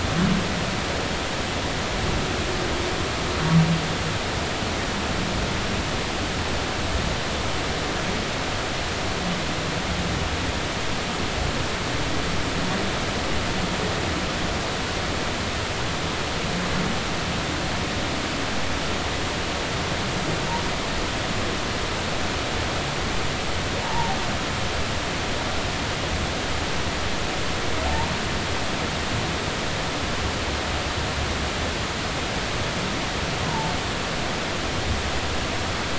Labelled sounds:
23.8	24.2	humpback whale, 0.80 to 0.99 kHz
33.4	33.7	humpback whale, 0.83 to 1.1 kHz

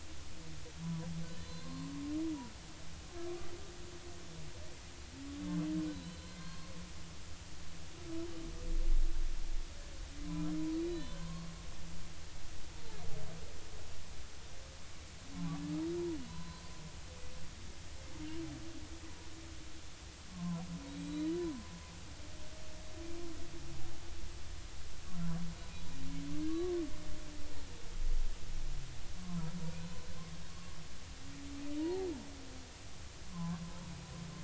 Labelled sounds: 0.8	1.9	humpback whale, 0.93 to 4.3 kHz
5.9	6.7	humpback whale, 0.99 to 4.4 kHz
10.8	11.5	humpback whale, 0.99 to 4.1 kHz
12.7	13.0	humpback whale, 0.83 to 0.96 kHz
15.3	16.6	humpback whale, 0.93 to 4.2 kHz
20.3	21.3	humpback whale, 0.93 to 4.1 kHz
26.5	26.7	humpback whale, 1.1 to 1.2 kHz
30.5	30.8	humpback whale, 1.0 to 1.2 kHz
31.8	32.1	humpback whale, 0.80 to 1.0 kHz
33.3	33.6	humpback whale, 0.96 to 1.2 kHz

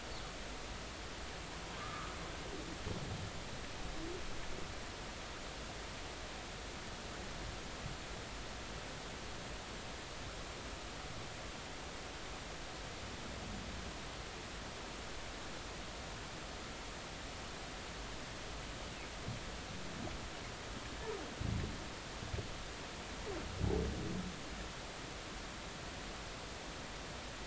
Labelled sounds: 1.8	2.1	humpback whale, 1.1 to 1.3 kHz

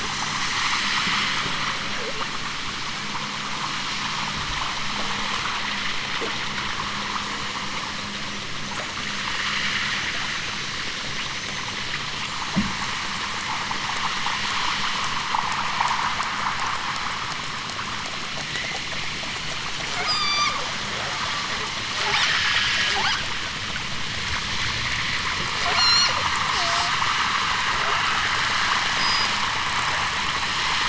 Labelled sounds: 1.9	2.4	killer whale, southern Alaska resident, 0.23 to 3.4 kHz
19.9	20.6	killer whale, southern Alaska resident, 0.60 to 8.0 kHz
22.0	23.1	killer whale, southern Alaska resident, 3.9 to 6.2 kHz
25.6	26.2	killer whale, southern Alaska resident, 2.4 to 8.0 kHz
26.4	27.0	killer whale, southern Alaska resident, 0.37 to 8.0 kHz
27.8	28.4	killer whale, southern Alaska resident, 0.32 to 5.0 kHz

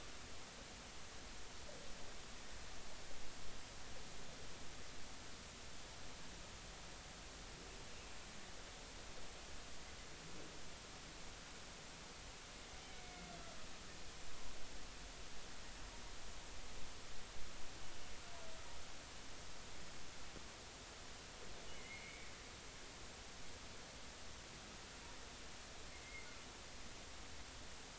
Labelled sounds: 12.8	13.3	humpback whale, 2.1 to 2.4 kHz
21.7	22.3	humpback whale, 2.0 to 2.4 kHz
26.0	26.4	humpback whale, 2.0 to 2.2 kHz

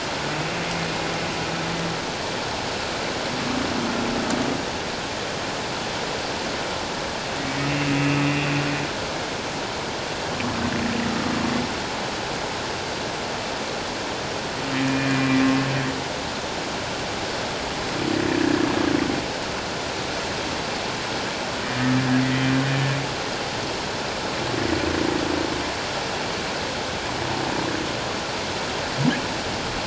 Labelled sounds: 7.8	8.2	humpback whale, 2.5 to 2.7 kHz
14.8	15.4	humpback whale, 2.3 to 2.5 kHz
22.2	22.5	humpback whale, 1.9 to 2.0 kHz

